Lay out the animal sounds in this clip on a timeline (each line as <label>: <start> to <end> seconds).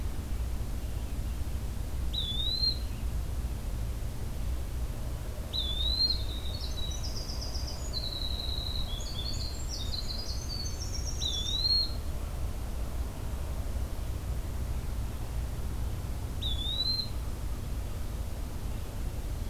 Eastern Wood-Pewee (Contopus virens): 2.1 to 2.9 seconds
Eastern Wood-Pewee (Contopus virens): 5.4 to 6.4 seconds
Winter Wren (Troglodytes hiemalis): 6.0 to 11.7 seconds
Eastern Wood-Pewee (Contopus virens): 11.0 to 12.0 seconds
Eastern Wood-Pewee (Contopus virens): 16.3 to 17.3 seconds